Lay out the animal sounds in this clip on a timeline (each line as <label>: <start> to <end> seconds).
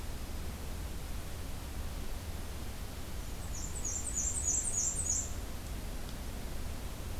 Black-and-white Warbler (Mniotilta varia): 3.2 to 5.3 seconds